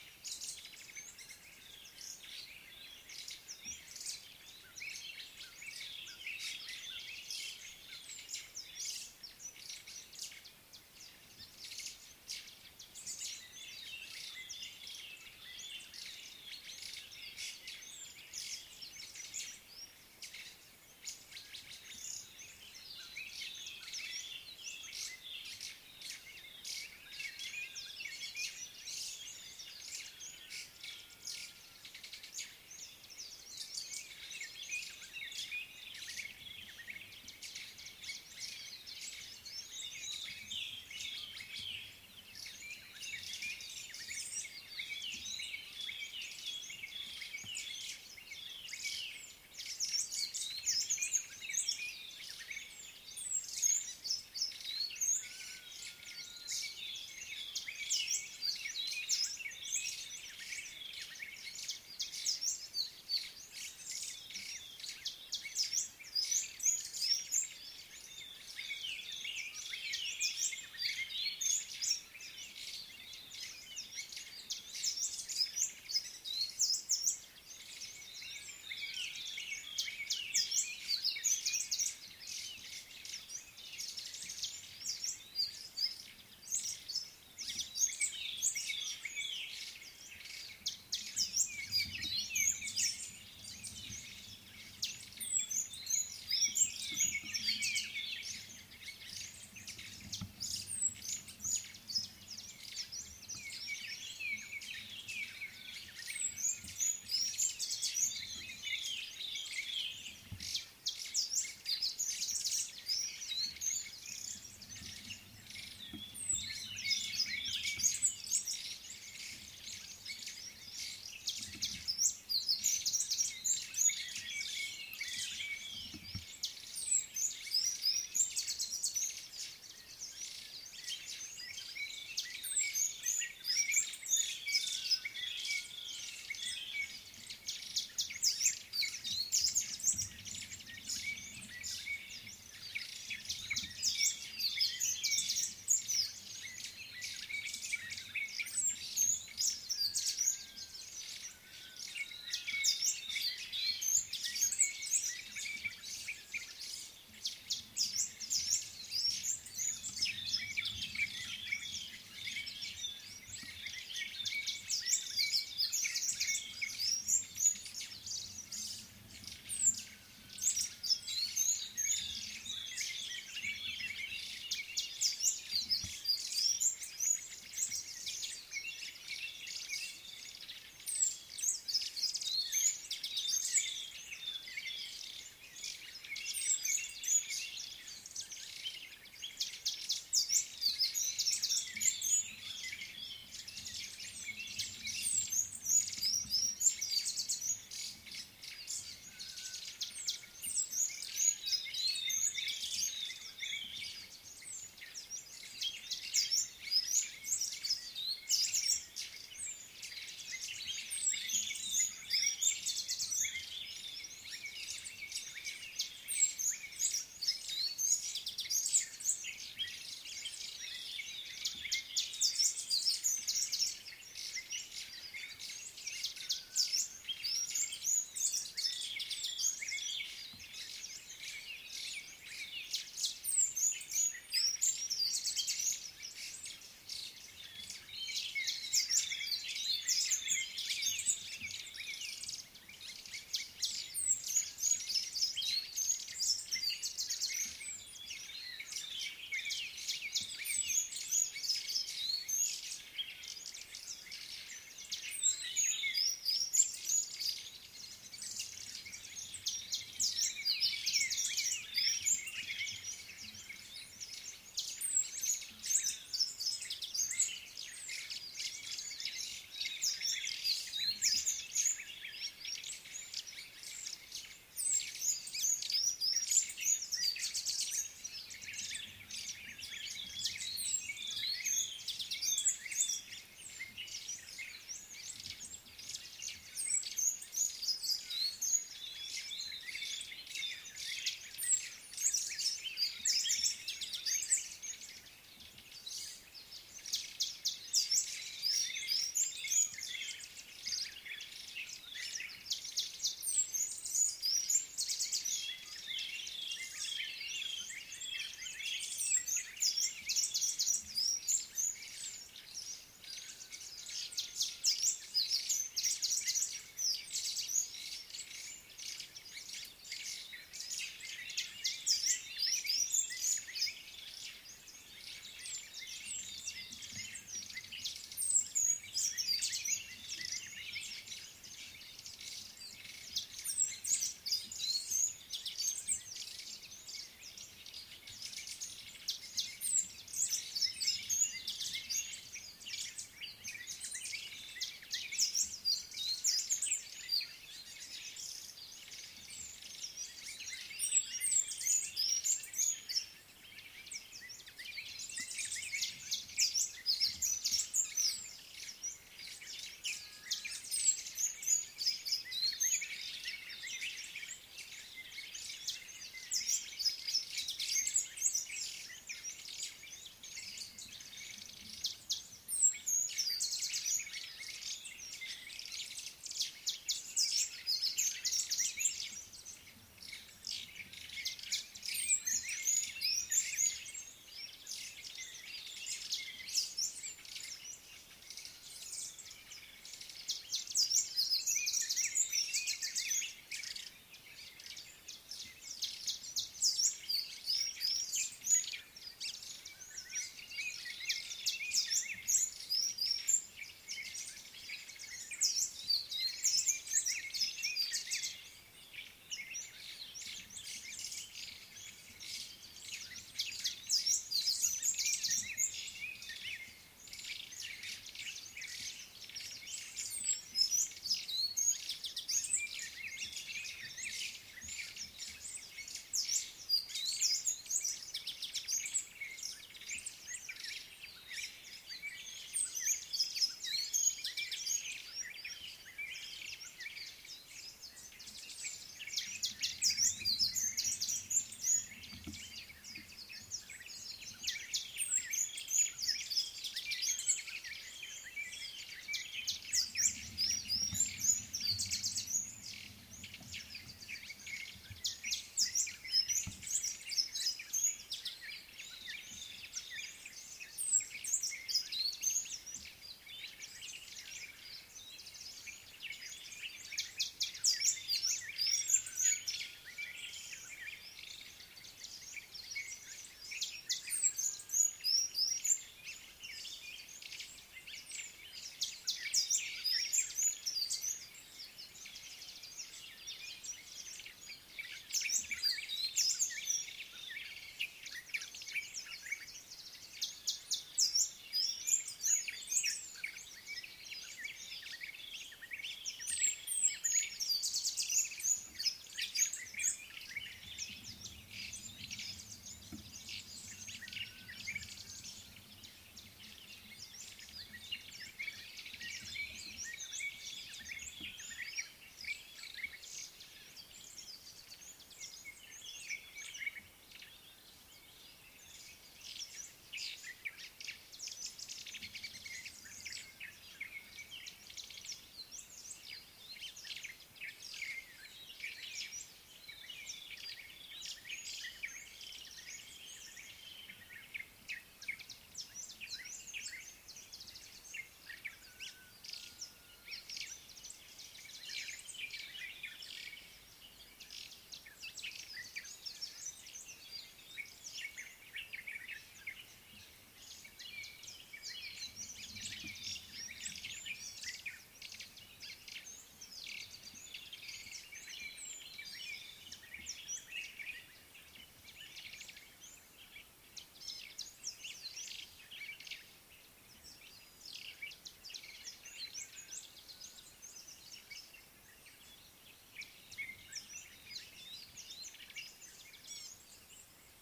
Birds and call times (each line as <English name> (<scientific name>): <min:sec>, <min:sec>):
White-browed Sparrow-Weaver (Plocepasser mahali): 0:04.0, 0:11.7, 0:49.9, 0:56.5, 2:20.5, 3:13.8, 3:32.9, 3:50.9, 4:05.9, 4:32.6, 4:39.1, 6:57.9, 8:41.7, 9:12.8
White-browed Robin-Chat (Cossypha heuglini): 0:14.5, 0:35.1, 0:40.6, 0:45.4, 1:09.2, 1:18.8, 1:28.3, 1:35.8, 1:48.7, 2:14.3, 2:41.4, 2:52.6, 3:58.0, 4:21.8, 5:06.4, 5:26.2, 8:52.2
Amethyst Sunbird (Chalcomitra amethystina): 1:06.4, 1:15.6, 1:31.4, 2:02.0, 2:19.4, 2:25.7, 2:32.7, 2:44.9, 2:55.2, 3:10.4, 3:27.0, 3:37.8, 3:54.6, 4:10.7, 4:16.1, 4:35.8, 4:53.2, 5:03.9, 5:22.5, 5:52.2, 6:42.3, 7:00.6, 7:07.3, 7:20.0, 7:25.7, 7:54.8, 8:11.0
Gray-backed Camaroptera (Camaroptera brevicaudata): 9:36.3